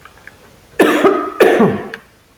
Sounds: Cough